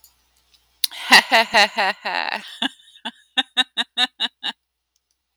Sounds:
Laughter